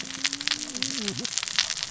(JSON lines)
{"label": "biophony, cascading saw", "recorder": "SoundTrap 600 or HydroMoth"}